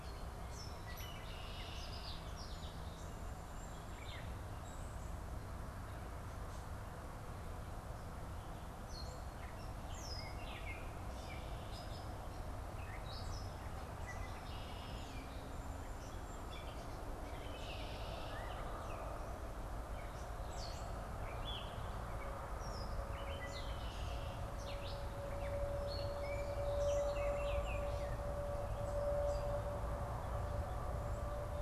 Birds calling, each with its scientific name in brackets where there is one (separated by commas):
Hairy Woodpecker (Dryobates villosus), Gray Catbird (Dumetella carolinensis), Baltimore Oriole (Icterus galbula), Red-winged Blackbird (Agelaius phoeniceus)